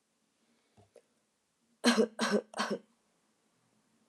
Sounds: Cough